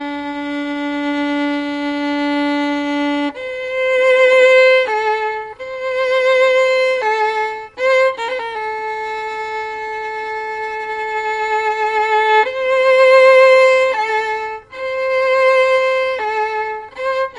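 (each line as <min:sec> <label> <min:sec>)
0:00.0 Slow lyrical music performed by a solo violin. 0:17.4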